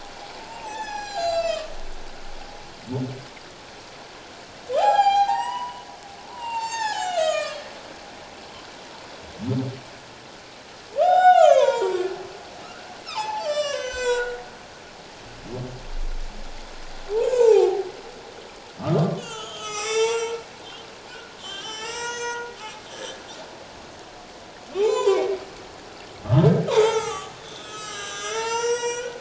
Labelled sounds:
0.5	1.7	humpback whale, 0.78 to 7.6 kHz
4.7	7.6	humpback whale, 0.78 to 7.9 kHz
11.0	12.0	humpback whale, 0.78 to 7.5 kHz
13.0	14.4	humpback whale, 0.78 to 8.0 kHz
17.3	17.9	humpback whale, 0.78 to 1.1 kHz
18.8	20.4	humpback whale, 0.84 to 7.8 kHz
21.4	23.2	humpback whale, 0.91 to 8.0 kHz
24.7	25.3	humpback whale, 0.78 to 7.7 kHz
26.7	29.1	humpback whale, 0.78 to 7.8 kHz

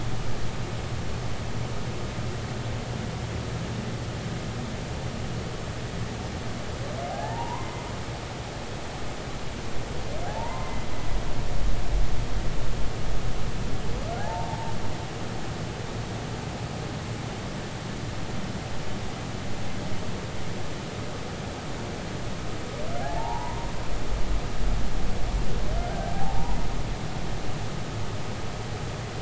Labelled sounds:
7.1	7.8	humpback whale, 0.80 to 1.9 kHz
10.3	10.8	humpback whale, 0.80 to 2.1 kHz
14.2	14.7	humpback whale, 0.80 to 0.96 kHz
23.0	23.7	humpback whale, 0.80 to 1.1 kHz
25.8	26.1	humpback whale, 1.3 to 1.6 kHz

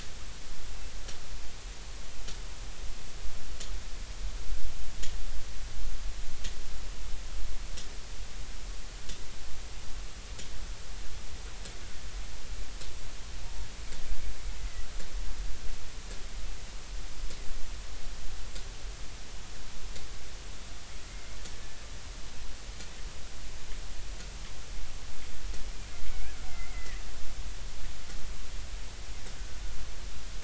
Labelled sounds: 21.1	21.4	killer whale, Bigg's (transient), 2.0 to 2.2 kHz
26.5	27.0	killer whale, Bigg's (transient), 1.8 to 2.2 kHz

